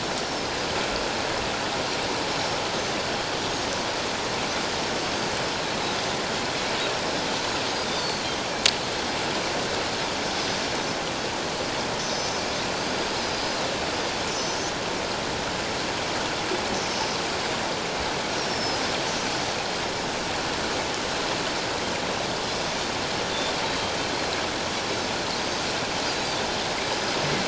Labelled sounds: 2.3	2.6	Pacific white-sided dolphin, 5.2 to 5.7 kHz
7.9	8.3	Pacific white-sided dolphin, 4.0 to 4.8 kHz
12.0	13.6	Pacific white-sided dolphin, 4.7 to 6.1 kHz
14.3	14.6	Pacific white-sided dolphin, 5.1 to 6.1 kHz
16.9	17.2	Pacific white-sided dolphin, 4.9 to 6.1 kHz
18.3	18.8	Pacific white-sided dolphin, 5.0 to 5.8 kHz
19.2	19.6	Pacific white-sided dolphin, 5.7 to 6.1 kHz
25.4	25.7	Pacific white-sided dolphin, 4.7 to 6.5 kHz
26.9	27.2	Pacific white-sided dolphin, 5.0 to 5.1 kHz

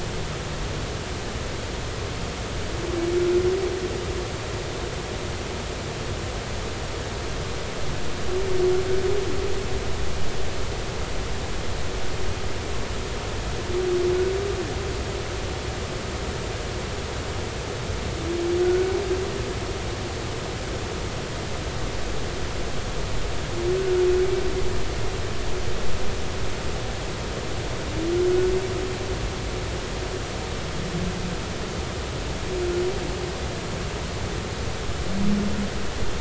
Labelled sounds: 18.6	18.9	humpback whale, 1.4 to 1.5 kHz
23.8	24.0	humpback whale, 1.4 to 1.5 kHz

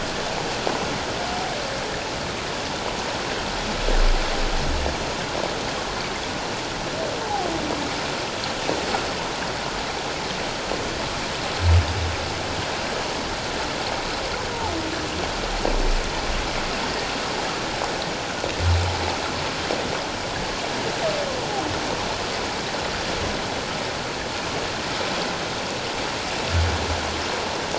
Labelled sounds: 7.2	7.5	humpback whale, 0.78 to 1.0 kHz

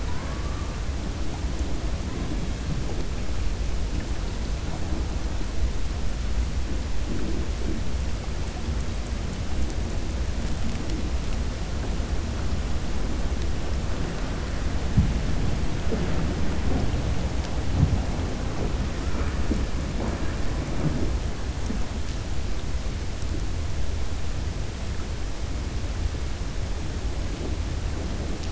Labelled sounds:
0.0	0.7	killer whale, 0.93 to 2.2 kHz

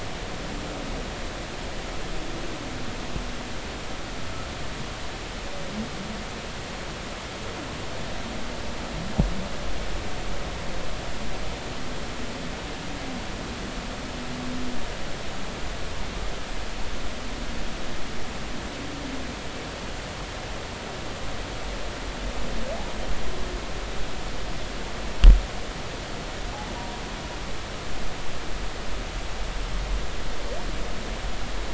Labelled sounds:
26.8	27.0	humpback whale, 0.90 to 0.99 kHz

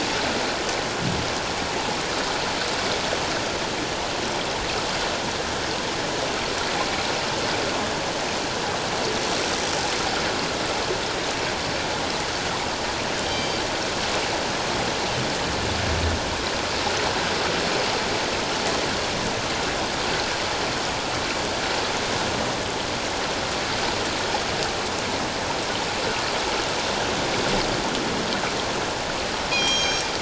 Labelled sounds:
13.3	13.6	killer whale, northern resident, G clan, 3.1 to 4.8 kHz
29.5	30.1	killer whale, northern resident, G clan, 2.2 to 6.5 kHz

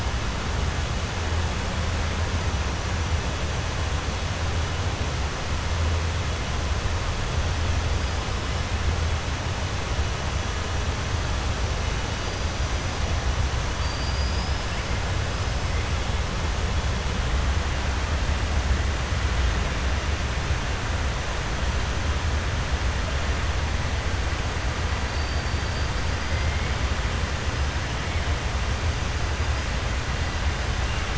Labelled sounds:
25.1	25.9	killer whale, 4.0 to 5.1 kHz

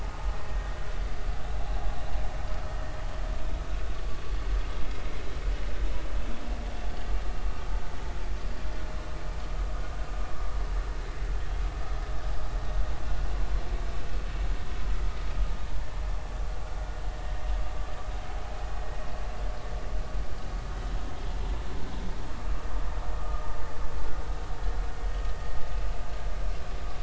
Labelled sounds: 23.2	23.6	vessel noise, 1.1 to 1.3 kHz

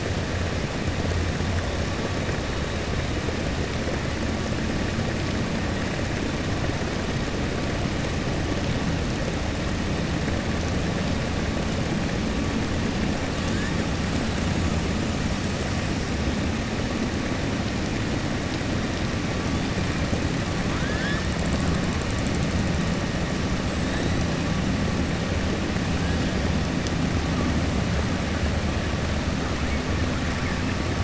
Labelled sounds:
20.6	21.2	killer whale, 1.0 to 5.5 kHz

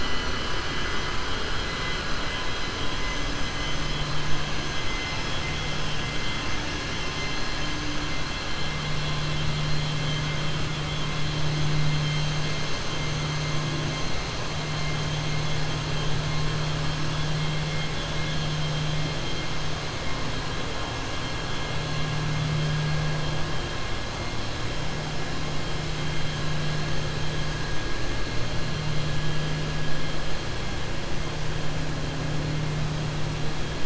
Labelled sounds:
3.0	3.9	vessel noise, 5.1 to 6.5 kHz

